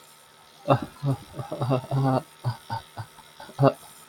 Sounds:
Laughter